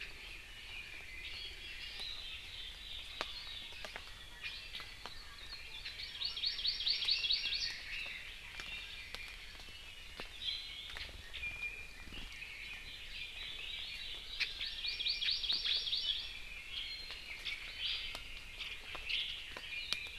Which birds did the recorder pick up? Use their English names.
Iiwi, Hawaii Amakihi